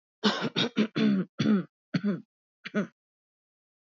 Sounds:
Throat clearing